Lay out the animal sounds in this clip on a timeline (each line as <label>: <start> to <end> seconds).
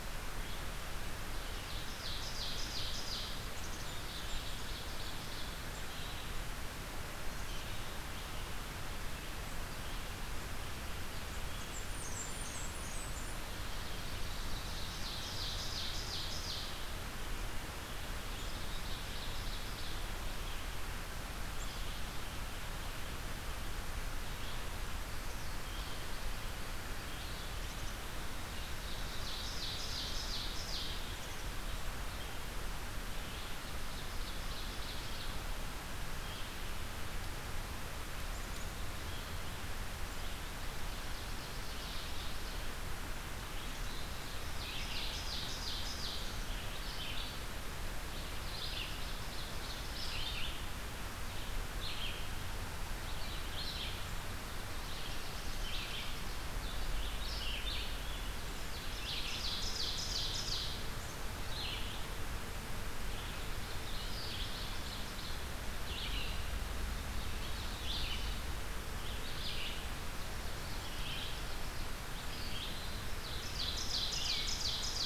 Red-eyed Vireo (Vireo olivaceus): 0.3 to 54.1 seconds
Ovenbird (Seiurus aurocapilla): 1.4 to 5.6 seconds
Blackburnian Warbler (Setophaga fusca): 11.4 to 13.5 seconds
Ovenbird (Seiurus aurocapilla): 14.5 to 16.8 seconds
Ovenbird (Seiurus aurocapilla): 18.1 to 20.4 seconds
Black-capped Chickadee (Poecile atricapillus): 27.5 to 28.0 seconds
Ovenbird (Seiurus aurocapilla): 28.8 to 31.2 seconds
Black-capped Chickadee (Poecile atricapillus): 31.1 to 31.5 seconds
Ovenbird (Seiurus aurocapilla): 33.5 to 35.6 seconds
Black-capped Chickadee (Poecile atricapillus): 38.1 to 38.8 seconds
Ovenbird (Seiurus aurocapilla): 41.0 to 42.6 seconds
Ovenbird (Seiurus aurocapilla): 44.2 to 46.6 seconds
Ovenbird (Seiurus aurocapilla): 48.3 to 50.5 seconds
Ovenbird (Seiurus aurocapilla): 54.5 to 56.5 seconds
Red-eyed Vireo (Vireo olivaceus): 55.4 to 75.1 seconds
Ovenbird (Seiurus aurocapilla): 58.5 to 61.1 seconds
Ovenbird (Seiurus aurocapilla): 63.1 to 65.3 seconds
Ovenbird (Seiurus aurocapilla): 67.1 to 68.4 seconds
Ovenbird (Seiurus aurocapilla): 70.1 to 72.0 seconds
Ovenbird (Seiurus aurocapilla): 73.0 to 75.1 seconds